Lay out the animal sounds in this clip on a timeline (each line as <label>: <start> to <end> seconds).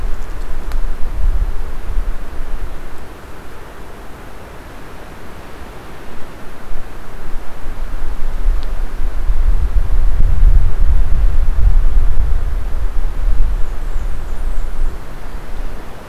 Blackburnian Warbler (Setophaga fusca): 13.3 to 15.1 seconds